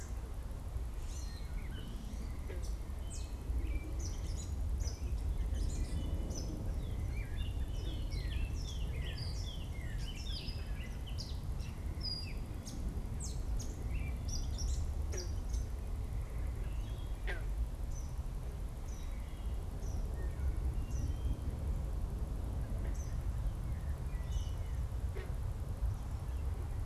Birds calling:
Gray Catbird (Dumetella carolinensis), Eastern Kingbird (Tyrannus tyrannus), Northern Cardinal (Cardinalis cardinalis)

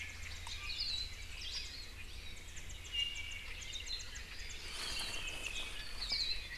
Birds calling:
Warbling White-eye (Zosterops japonicus), Iiwi (Drepanis coccinea), Hawaii Akepa (Loxops coccineus)

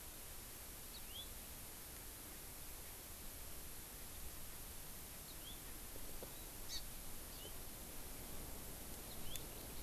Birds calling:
Yellow-fronted Canary (Crithagra mozambica), Hawaii Amakihi (Chlorodrepanis virens)

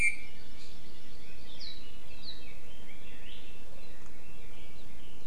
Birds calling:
Red-billed Leiothrix (Leiothrix lutea), Hawaii Amakihi (Chlorodrepanis virens), Iiwi (Drepanis coccinea)

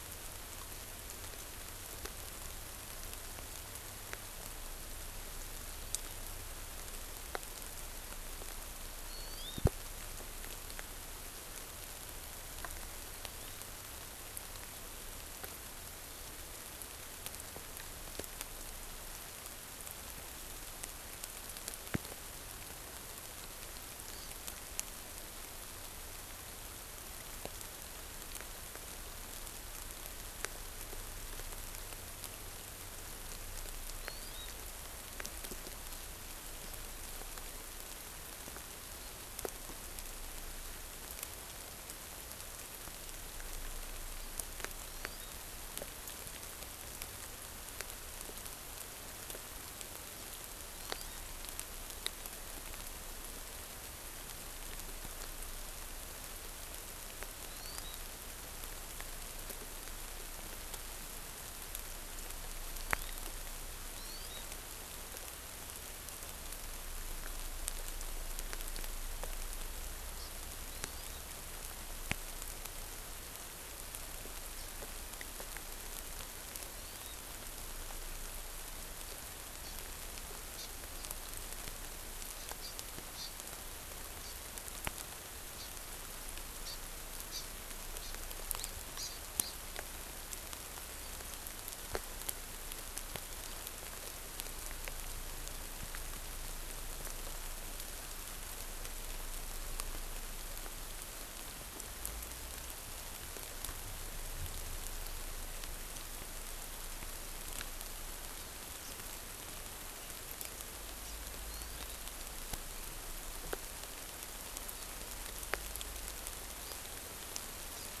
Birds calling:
Hawaii Amakihi (Chlorodrepanis virens)

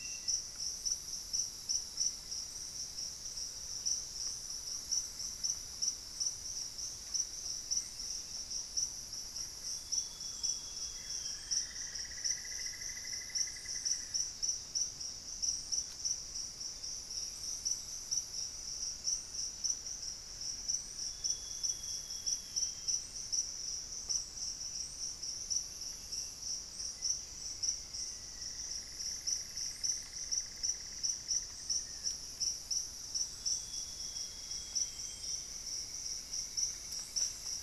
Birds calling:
Cinnamon-throated Woodcreeper (Dendrexetastes rufigula), unidentified bird, Amazonian Grosbeak (Cyanoloxia rothschildii), Thrush-like Wren (Campylorhynchus turdinus), Black-faced Antthrush (Formicarius analis), Buff-breasted Wren (Cantorchilus leucotis)

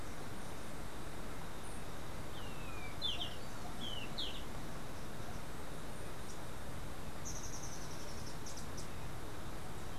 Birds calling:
unidentified bird, Golden-faced Tyrannulet (Zimmerius chrysops)

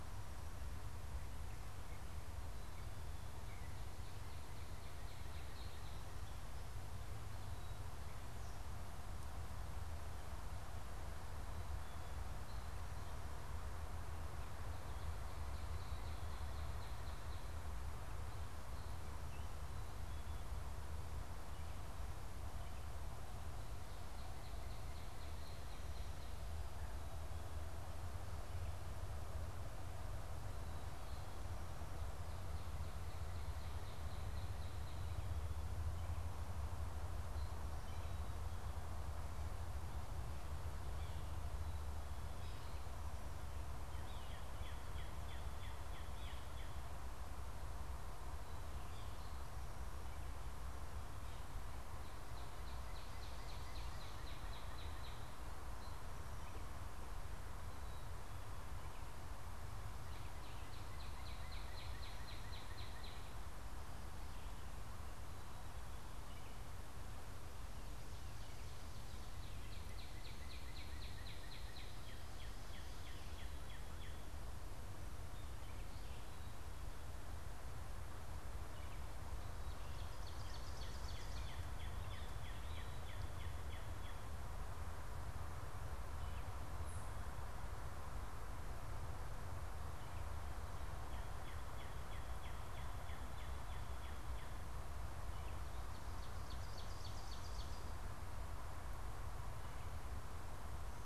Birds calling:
Ovenbird (Seiurus aurocapilla), Common Yellowthroat (Geothlypis trichas), Northern Cardinal (Cardinalis cardinalis), Gray Catbird (Dumetella carolinensis)

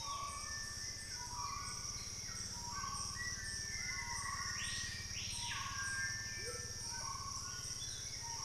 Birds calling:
Screaming Piha (Lipaugus vociferans), White-throated Toucan (Ramphastos tucanus), Hauxwell's Thrush (Turdus hauxwelli), Amazonian Motmot (Momotus momota), Starred Wood-Quail (Odontophorus stellatus)

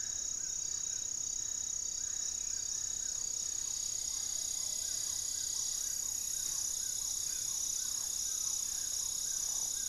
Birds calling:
Black-tailed Trogon (Trogon melanurus), Black-faced Antthrush (Formicarius analis), Plumbeous Pigeon (Patagioenas plumbea), Screaming Piha (Lipaugus vociferans), unidentified bird, Amazonian Trogon (Trogon ramonianus)

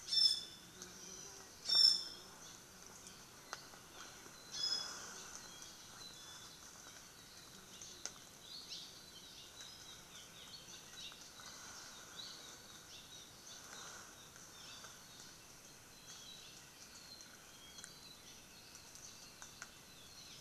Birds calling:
Apapane (Himatione sanguinea), Iiwi (Drepanis coccinea), Hawaii Amakihi (Chlorodrepanis virens), Hawaii Creeper (Loxops mana)

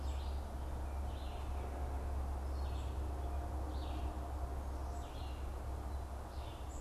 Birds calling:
unidentified bird, Red-eyed Vireo (Vireo olivaceus)

